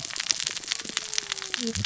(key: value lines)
label: biophony, cascading saw
recorder: SoundTrap 600 or HydroMoth